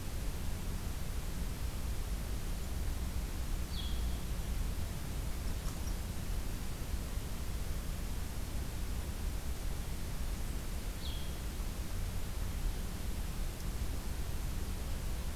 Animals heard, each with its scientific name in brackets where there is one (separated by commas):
Blue-headed Vireo (Vireo solitarius)